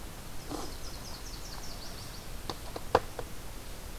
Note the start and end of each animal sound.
[0.10, 2.51] Nashville Warbler (Leiothlypis ruficapilla)

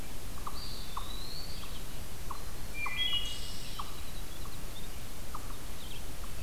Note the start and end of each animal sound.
[0.00, 6.43] Red-eyed Vireo (Vireo olivaceus)
[0.00, 6.43] unknown mammal
[0.35, 1.87] Eastern Wood-Pewee (Contopus virens)
[1.98, 5.22] Winter Wren (Troglodytes hiemalis)
[2.57, 3.80] Wood Thrush (Hylocichla mustelina)

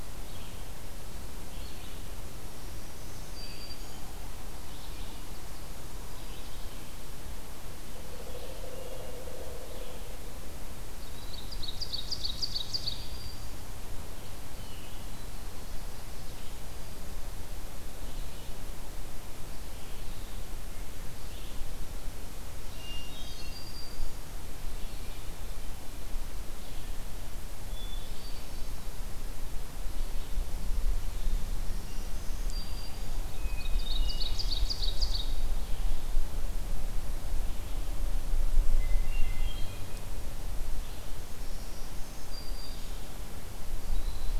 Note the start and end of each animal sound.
[0.00, 36.21] Red-eyed Vireo (Vireo olivaceus)
[2.41, 4.20] Black-throated Green Warbler (Setophaga virens)
[10.92, 13.05] Ovenbird (Seiurus aurocapilla)
[12.12, 13.66] Black-throated Green Warbler (Setophaga virens)
[22.60, 23.60] Hermit Thrush (Catharus guttatus)
[22.64, 24.44] Black-throated Green Warbler (Setophaga virens)
[27.64, 28.82] Hermit Thrush (Catharus guttatus)
[31.52, 33.31] Black-throated Green Warbler (Setophaga virens)
[33.15, 34.68] Hermit Thrush (Catharus guttatus)
[33.41, 35.35] Ovenbird (Seiurus aurocapilla)
[37.27, 44.39] Red-eyed Vireo (Vireo olivaceus)
[38.76, 39.94] Hermit Thrush (Catharus guttatus)
[41.21, 43.14] Black-throated Green Warbler (Setophaga virens)

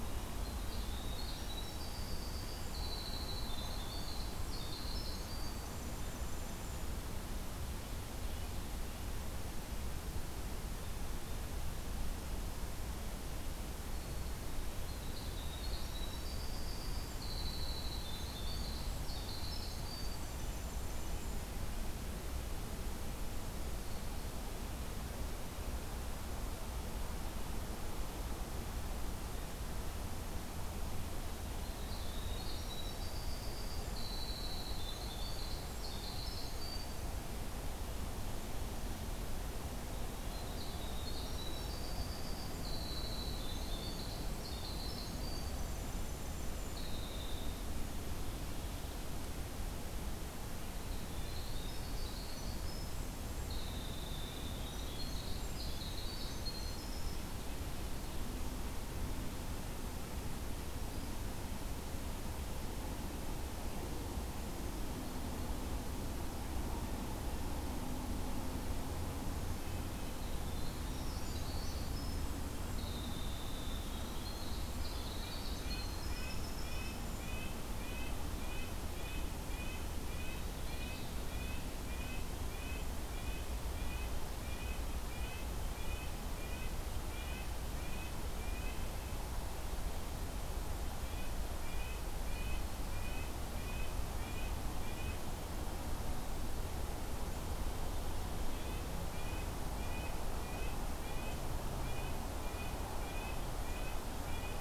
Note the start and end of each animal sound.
[0.00, 6.95] Winter Wren (Troglodytes hiemalis)
[13.89, 21.52] Winter Wren (Troglodytes hiemalis)
[23.80, 24.47] Black-throated Green Warbler (Setophaga virens)
[31.56, 37.17] Winter Wren (Troglodytes hiemalis)
[39.92, 47.65] Winter Wren (Troglodytes hiemalis)
[50.73, 57.24] Winter Wren (Troglodytes hiemalis)
[69.58, 77.31] Winter Wren (Troglodytes hiemalis)
[75.14, 86.74] Red-breasted Nuthatch (Sitta canadensis)
[79.97, 81.64] Winter Wren (Troglodytes hiemalis)
[87.09, 88.89] Red-breasted Nuthatch (Sitta canadensis)
[90.87, 95.20] Red-breasted Nuthatch (Sitta canadensis)
[98.44, 101.50] Red-breasted Nuthatch (Sitta canadensis)
[101.78, 104.61] Red-breasted Nuthatch (Sitta canadensis)

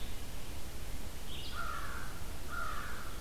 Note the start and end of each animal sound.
[0.00, 3.21] Red-eyed Vireo (Vireo olivaceus)
[1.22, 3.21] American Crow (Corvus brachyrhynchos)

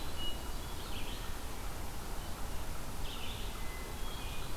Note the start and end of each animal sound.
[0.00, 0.84] Hermit Thrush (Catharus guttatus)
[0.63, 4.57] Red-eyed Vireo (Vireo olivaceus)
[3.44, 4.57] Hermit Thrush (Catharus guttatus)

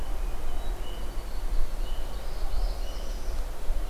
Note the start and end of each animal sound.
[0.00, 1.13] Hermit Thrush (Catharus guttatus)
[0.86, 2.17] Red-winged Blackbird (Agelaius phoeniceus)
[2.04, 3.46] Northern Parula (Setophaga americana)

